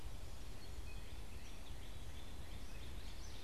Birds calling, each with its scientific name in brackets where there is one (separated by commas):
Northern Cardinal (Cardinalis cardinalis), Gray Catbird (Dumetella carolinensis)